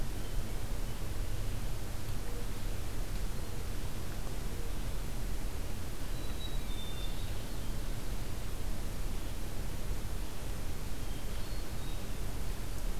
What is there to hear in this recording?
Mourning Dove, Black-capped Chickadee, Hermit Thrush